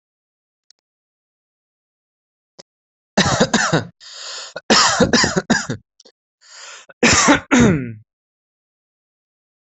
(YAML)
expert_labels:
- quality: good
  cough_type: dry
  dyspnea: false
  wheezing: false
  stridor: false
  choking: false
  congestion: false
  nothing: true
  diagnosis: upper respiratory tract infection
  severity: mild
age: 22
gender: male
respiratory_condition: false
fever_muscle_pain: false
status: healthy